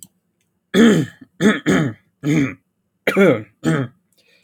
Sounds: Throat clearing